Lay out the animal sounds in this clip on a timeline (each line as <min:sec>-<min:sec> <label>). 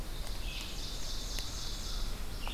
0:00.0-0:02.3 Ovenbird (Seiurus aurocapilla)
0:00.0-0:02.5 Red-eyed Vireo (Vireo olivaceus)